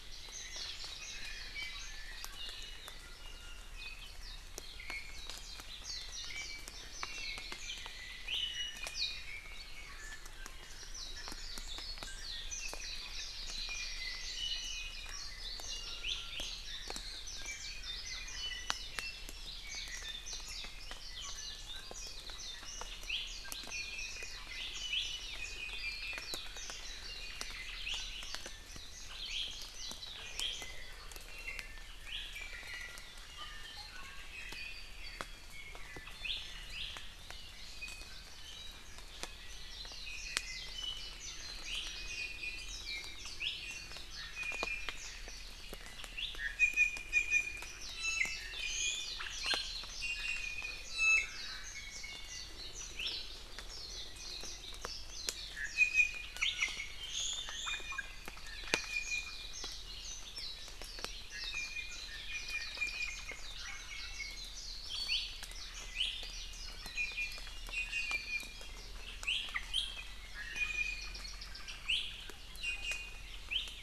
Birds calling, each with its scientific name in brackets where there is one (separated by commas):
Iiwi (Drepanis coccinea), Warbling White-eye (Zosterops japonicus)